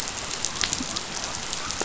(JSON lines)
{"label": "biophony", "recorder": "SoundTrap 500"}